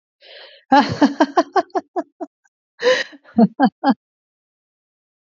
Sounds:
Laughter